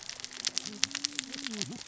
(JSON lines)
{"label": "biophony, cascading saw", "recorder": "SoundTrap 600 or HydroMoth"}